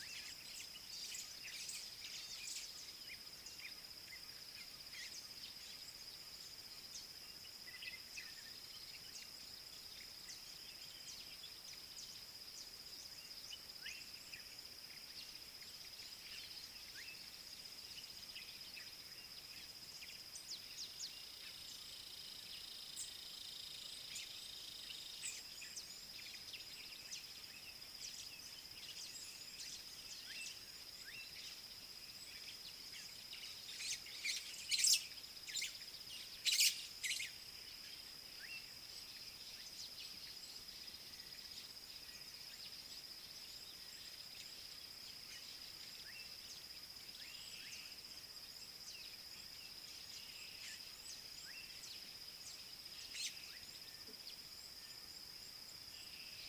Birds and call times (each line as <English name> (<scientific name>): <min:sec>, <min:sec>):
Scaly-throated Honeyguide (Indicator variegatus): 0:22.8
White-browed Sparrow-Weaver (Plocepasser mahali): 0:34.8, 0:36.6